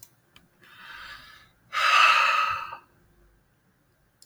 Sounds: Sigh